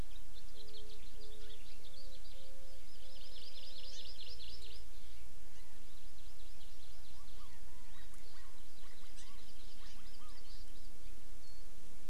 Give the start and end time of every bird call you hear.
0.0s-2.2s: House Finch (Haemorhous mexicanus)
2.6s-4.8s: Hawaii Amakihi (Chlorodrepanis virens)
3.9s-4.0s: House Finch (Haemorhous mexicanus)
5.9s-7.6s: Hawaii Amakihi (Chlorodrepanis virens)
7.1s-9.4s: Chinese Hwamei (Garrulax canorus)
8.7s-10.9s: Hawaii Amakihi (Chlorodrepanis virens)

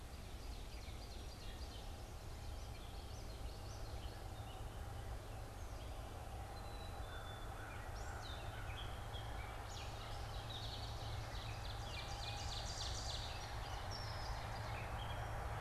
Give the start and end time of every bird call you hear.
0.2s-1.9s: Ovenbird (Seiurus aurocapilla)
2.2s-4.2s: Common Yellowthroat (Geothlypis trichas)
6.5s-7.5s: Black-capped Chickadee (Poecile atricapillus)
7.0s-9.6s: American Crow (Corvus brachyrhynchos)
7.7s-15.3s: Gray Catbird (Dumetella carolinensis)
10.9s-13.6s: Ovenbird (Seiurus aurocapilla)

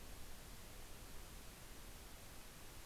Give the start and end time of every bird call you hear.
0.0s-2.9s: Red-breasted Nuthatch (Sitta canadensis)

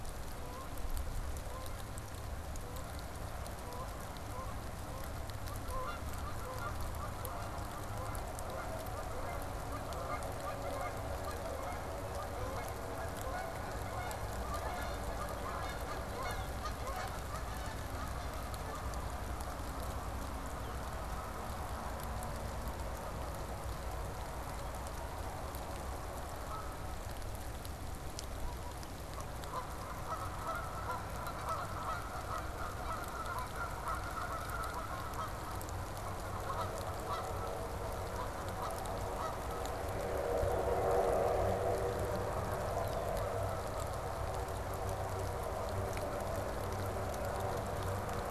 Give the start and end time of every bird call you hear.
0.0s-39.8s: Canada Goose (Branta canadensis)
42.7s-43.1s: Red-winged Blackbird (Agelaius phoeniceus)

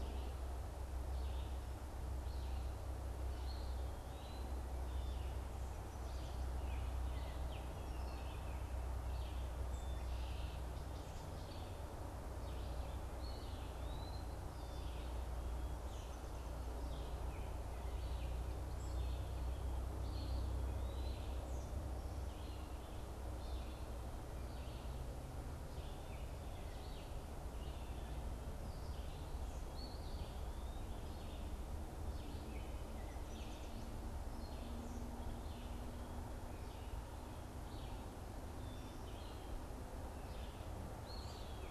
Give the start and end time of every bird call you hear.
0.0s-41.7s: Red-eyed Vireo (Vireo olivaceus)
13.2s-14.5s: Eastern Wood-Pewee (Contopus virens)
41.0s-41.7s: Eastern Wood-Pewee (Contopus virens)

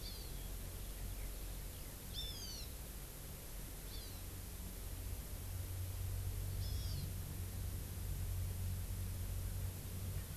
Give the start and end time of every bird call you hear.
0.0s-0.3s: Hawaii Amakihi (Chlorodrepanis virens)
2.1s-2.8s: Hawaiian Hawk (Buteo solitarius)
3.9s-4.2s: Hawaii Amakihi (Chlorodrepanis virens)
6.6s-7.1s: Hawaiian Hawk (Buteo solitarius)

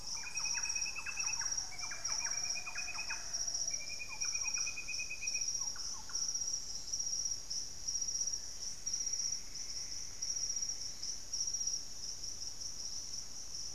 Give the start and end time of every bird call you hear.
0.0s-6.5s: Thrush-like Wren (Campylorhynchus turdinus)
0.0s-7.7s: Green Ibis (Mesembrinibis cayennensis)

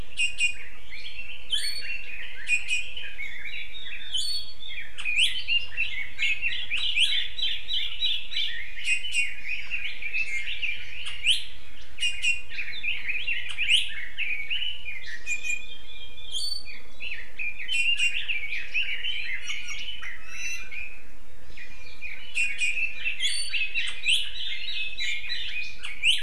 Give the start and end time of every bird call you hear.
0.2s-0.7s: Iiwi (Drepanis coccinea)
0.9s-6.7s: Red-billed Leiothrix (Leiothrix lutea)
2.5s-2.9s: Iiwi (Drepanis coccinea)
6.5s-8.5s: Hawaii Akepa (Loxops coccineus)
8.4s-11.2s: Red-billed Leiothrix (Leiothrix lutea)
8.7s-9.4s: Iiwi (Drepanis coccinea)
12.0s-12.5s: Iiwi (Drepanis coccinea)
12.5s-15.0s: Red-billed Leiothrix (Leiothrix lutea)
15.0s-15.9s: Iiwi (Drepanis coccinea)
16.6s-20.2s: Red-billed Leiothrix (Leiothrix lutea)
17.7s-18.2s: Iiwi (Drepanis coccinea)
19.4s-20.7s: Iiwi (Drepanis coccinea)
22.0s-25.8s: Red-billed Leiothrix (Leiothrix lutea)
22.3s-22.7s: Iiwi (Drepanis coccinea)
25.0s-25.2s: Iiwi (Drepanis coccinea)

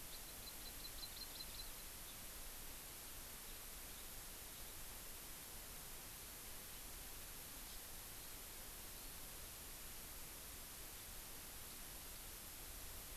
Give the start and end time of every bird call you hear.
0.0s-1.8s: Hawaii Amakihi (Chlorodrepanis virens)
7.6s-7.8s: Hawaii Amakihi (Chlorodrepanis virens)

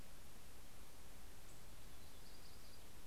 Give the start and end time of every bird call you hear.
1.0s-3.1s: Yellow-rumped Warbler (Setophaga coronata)

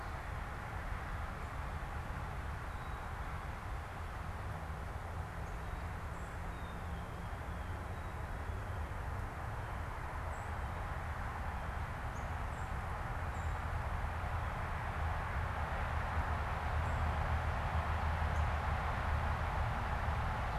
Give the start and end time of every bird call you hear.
2.7s-3.4s: Black-capped Chickadee (Poecile atricapillus)
6.5s-7.3s: Black-capped Chickadee (Poecile atricapillus)
10.2s-10.5s: Song Sparrow (Melospiza melodia)
12.1s-12.3s: Northern Cardinal (Cardinalis cardinalis)
12.5s-13.6s: unidentified bird
18.2s-18.5s: Black-capped Chickadee (Poecile atricapillus)

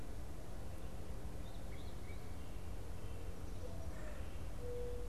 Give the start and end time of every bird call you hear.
1.3s-2.3s: unidentified bird
3.4s-5.1s: Mourning Dove (Zenaida macroura)

